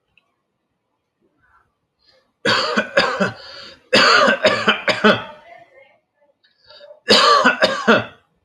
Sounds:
Cough